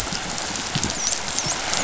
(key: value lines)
label: biophony, dolphin
recorder: SoundTrap 500